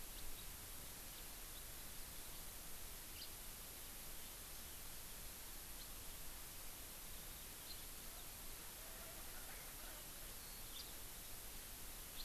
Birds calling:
Erckel's Francolin (Pternistis erckelii), House Finch (Haemorhous mexicanus)

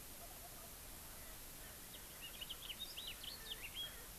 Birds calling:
House Finch (Haemorhous mexicanus), Wild Turkey (Meleagris gallopavo), Erckel's Francolin (Pternistis erckelii)

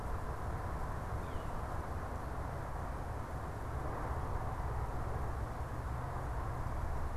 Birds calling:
Yellow-bellied Sapsucker (Sphyrapicus varius)

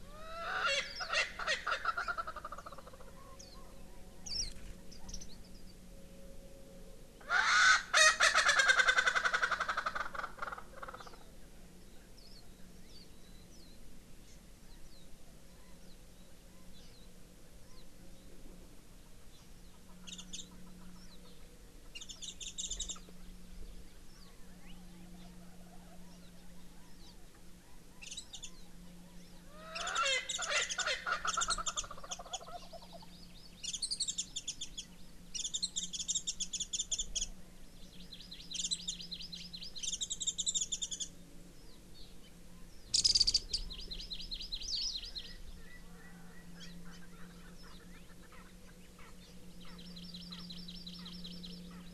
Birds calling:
Wild Turkey (Meleagris gallopavo), Warbling White-eye (Zosterops japonicus), Chinese Hwamei (Garrulax canorus), Erckel's Francolin (Pternistis erckelii), Hawaii Amakihi (Chlorodrepanis virens)

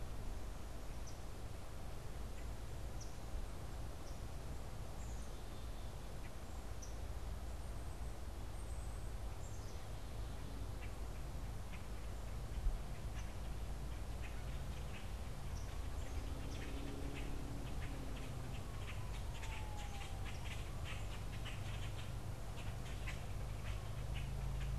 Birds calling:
Black-capped Chickadee (Poecile atricapillus), unidentified bird, Common Grackle (Quiscalus quiscula)

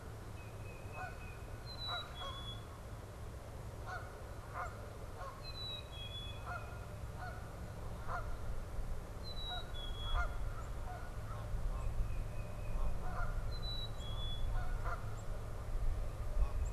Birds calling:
Canada Goose (Branta canadensis), Black-capped Chickadee (Poecile atricapillus), Tufted Titmouse (Baeolophus bicolor)

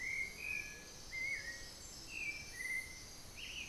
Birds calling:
Black-billed Thrush (Turdus ignobilis)

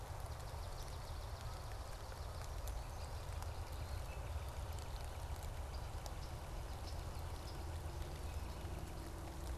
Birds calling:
Yellow-rumped Warbler (Setophaga coronata), Swamp Sparrow (Melospiza georgiana), Northern Flicker (Colaptes auratus)

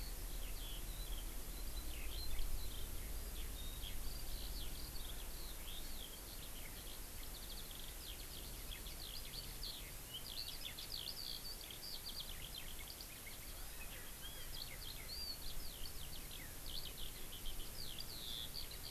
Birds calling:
Eurasian Skylark (Alauda arvensis)

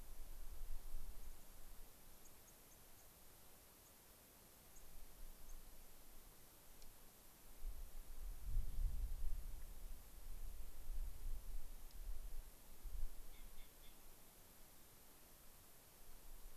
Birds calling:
White-crowned Sparrow (Zonotrichia leucophrys), unidentified bird

